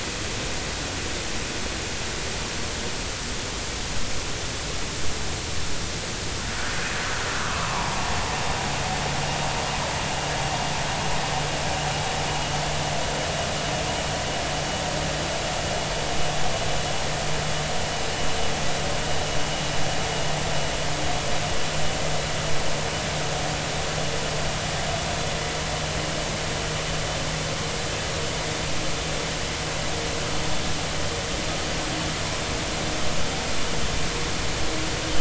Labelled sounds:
7.4	8.1	vessel noise, 0.80 to 1.4 kHz

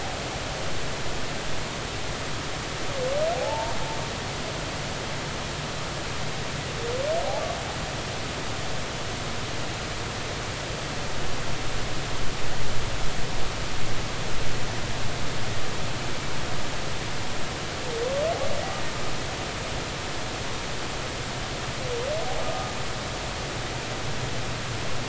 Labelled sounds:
3.3	3.7	humpback whale, 0.80 to 0.96 kHz
22.4	22.7	humpback whale, 1.2 to 1.3 kHz

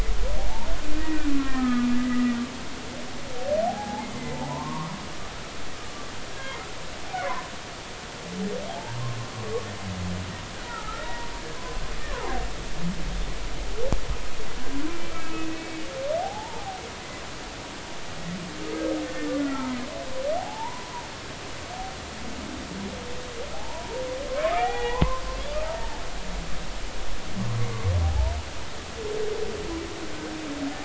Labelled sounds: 1.4	2.2	humpback whale, 0.99 to 2.4 kHz
3.6	4.9	humpback whale, 0.80 to 1.2 kHz
6.4	6.6	humpback whale, 2.0 to 2.2 kHz
8.7	9.0	humpback whale, 0.80 to 0.99 kHz
10.6	11.3	humpback whale, 0.83 to 2.0 kHz
12.0	12.4	humpback whale, 0.80 to 1.2 kHz
15.1	16.8	humpback whale, 0.80 to 2.6 kHz
19.0	19.7	humpback whale, 1.2 to 1.9 kHz
20.4	21.0	humpback whale, 0.80 to 1.1 kHz
23.5	24.0	humpback whale, 0.80 to 1.0 kHz
24.3	25.2	humpback whale, 0.80 to 3.5 kHz
28.0	28.3	humpback whale, 0.80 to 0.99 kHz

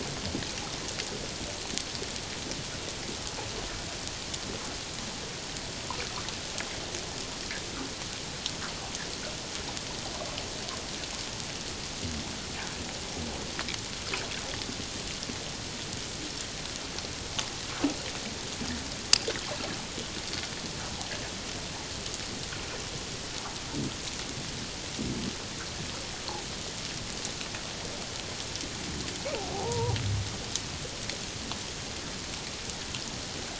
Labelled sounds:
29.5	29.9	fish, 0.78 to 1.0 kHz

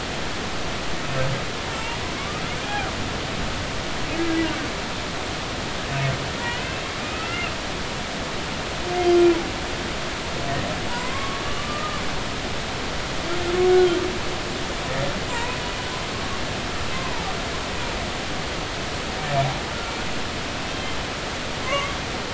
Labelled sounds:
1.7	2.9	humpback whale, 0.80 to 3.4 kHz
6.4	7.5	humpback whale, 1.2 to 2.9 kHz
10.9	12.0	humpback whale, 0.86 to 1.3 kHz
15.3	15.6	humpback whale, 0.90 to 1.1 kHz
16.1	16.4	humpback whale, 1.0 to 1.2 kHz
16.9	17.3	humpback whale, 0.80 to 1.1 kHz
20.7	21.0	humpback whale, 3.1 to 3.2 kHz
21.6	21.9	humpback whale, 0.99 to 2.3 kHz

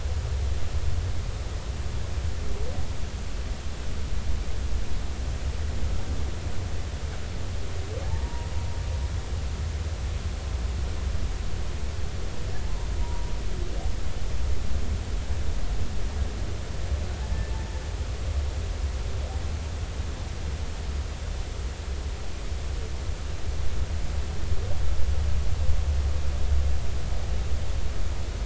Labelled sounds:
8.0	8.5	humpback whale, 0.80 to 0.99 kHz
13.0	13.3	humpback whale, 0.90 to 0.99 kHz

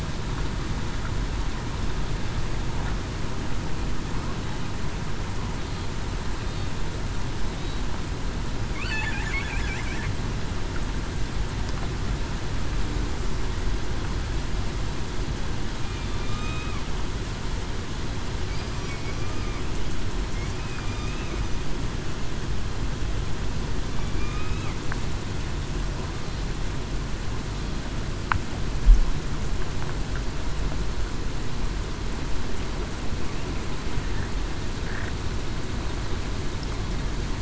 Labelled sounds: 16.1	16.7	killer whale, southern resident, 2.3 to 3.8 kHz
23.9	24.7	killer whale, southern resident, 1.1 to 2.6 kHz

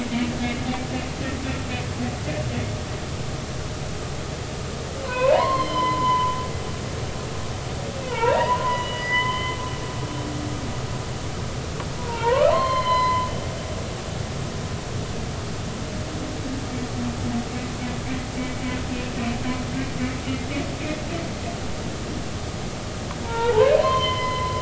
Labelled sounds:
5.0	6.3	humpback whale, 0.80 to 5.2 kHz
8.1	9.6	humpback whale, 0.86 to 3.1 kHz
12.0	13.3	humpback whale, 0.86 to 4.3 kHz
23.2	24.6	humpback whale, 0.80 to 3.2 kHz

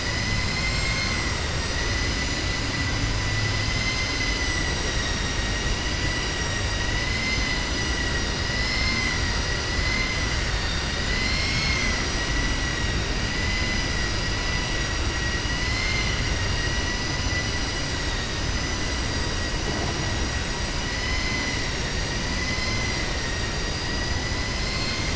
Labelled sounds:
8.6	9.2	vessel noise, 1.0 to 2.6 kHz

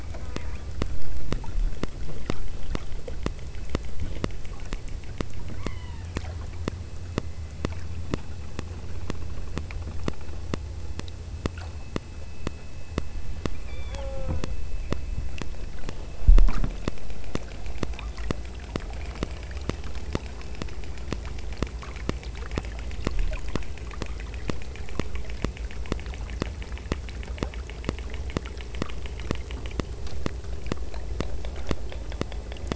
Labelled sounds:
0.1	0.8	killer whale, southern Alaska resident, 0.75 to 1.7 kHz
5.7	6.3	killer whale, southern Alaska resident, 0.68 to 3.2 kHz
13.7	14.6	killer whale, southern Alaska resident, 0.46 to 5.2 kHz

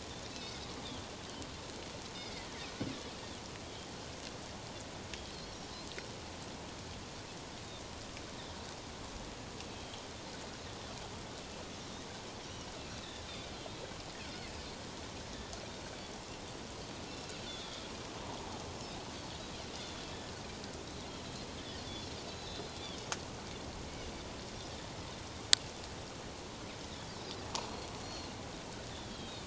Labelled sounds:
0.4	0.7	Pacific white-sided dolphin, 5.0 to 5.2 kHz
2.2	2.6	Pacific white-sided dolphin, 1.7 to 2.2 kHz
5.3	5.6	Pacific white-sided dolphin, 3.9 to 4.5 kHz
9.7	10.0	Pacific white-sided dolphin, 3.1 to 3.2 kHz
12.8	13.9	Pacific white-sided dolphin, 2.6 to 4.1 kHz
17.1	17.9	Pacific white-sided dolphin, 3.1 to 4.1 kHz
19.8	20.0	Pacific white-sided dolphin, 3.3 to 3.6 kHz
20.8	21.1	Pacific white-sided dolphin, 3.7 to 4.2 kHz
22.3	23.0	Pacific white-sided dolphin, 3.0 to 6.7 kHz
28.0	29.4	Pacific white-sided dolphin, 3.1 to 4.4 kHz

